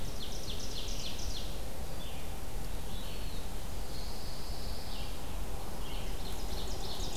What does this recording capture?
Ovenbird, Red-eyed Vireo, Eastern Wood-Pewee, Pine Warbler